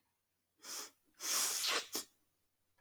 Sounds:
Sniff